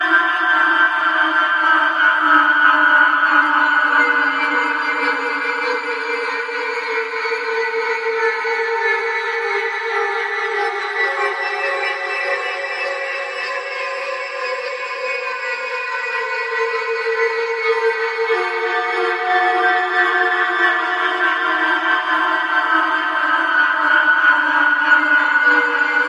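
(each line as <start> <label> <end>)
0.0 A metallic screeching sound winds up. 2.2
2.2 Metallic screeching winds down. 3.6
3.7 An echoing spinning sound. 5.9
5.9 Spinning slows down. 10.9
10.9 A constant spinning sound. 19.1
19.2 Echoing disturbing sounds. 26.1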